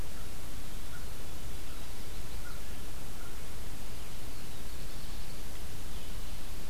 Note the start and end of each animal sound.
[4.17, 5.64] Black-throated Blue Warbler (Setophaga caerulescens)

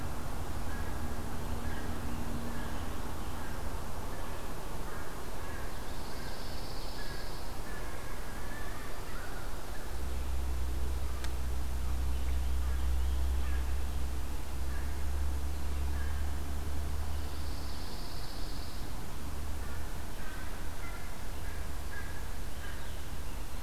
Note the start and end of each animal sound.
[0.34, 10.50] American Crow (Corvus brachyrhynchos)
[5.51, 8.29] Pine Warbler (Setophaga pinus)
[11.62, 13.29] Common Yellowthroat (Geothlypis trichas)
[11.90, 16.43] American Crow (Corvus brachyrhynchos)
[16.43, 19.41] Pine Warbler (Setophaga pinus)
[19.25, 23.63] American Crow (Corvus brachyrhynchos)

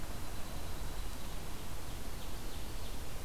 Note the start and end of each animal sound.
[0.00, 1.47] Dark-eyed Junco (Junco hyemalis)
[1.14, 3.25] Ovenbird (Seiurus aurocapilla)

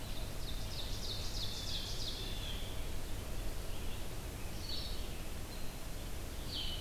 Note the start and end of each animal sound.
[0.00, 6.80] Blue-headed Vireo (Vireo solitarius)
[0.10, 2.33] Ovenbird (Seiurus aurocapilla)
[1.64, 2.72] Blue Jay (Cyanocitta cristata)

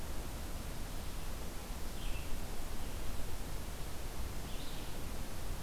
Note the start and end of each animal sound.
[0.00, 5.62] Red-eyed Vireo (Vireo olivaceus)

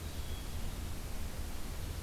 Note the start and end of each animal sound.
[0.00, 1.11] Hermit Thrush (Catharus guttatus)

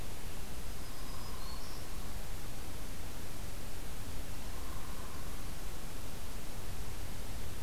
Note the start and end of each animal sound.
[0.50, 1.83] Black-throated Green Warbler (Setophaga virens)
[0.90, 1.76] Hairy Woodpecker (Dryobates villosus)
[4.46, 5.41] Hairy Woodpecker (Dryobates villosus)

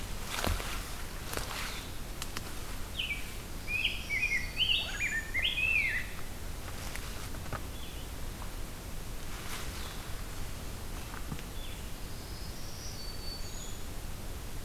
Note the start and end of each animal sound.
[2.79, 6.12] Rose-breasted Grosbeak (Pheucticus ludovicianus)
[3.55, 5.32] Black-throated Green Warbler (Setophaga virens)
[7.41, 14.64] Blue-headed Vireo (Vireo solitarius)
[11.97, 13.94] Black-throated Green Warbler (Setophaga virens)

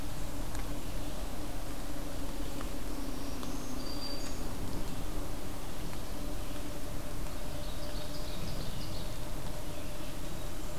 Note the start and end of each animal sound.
[2.69, 4.70] Black-throated Green Warbler (Setophaga virens)
[7.07, 9.42] Ovenbird (Seiurus aurocapilla)

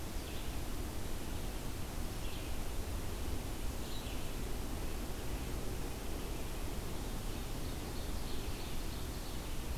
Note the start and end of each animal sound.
[0.00, 9.67] Red-eyed Vireo (Vireo olivaceus)
[7.43, 9.71] Ovenbird (Seiurus aurocapilla)

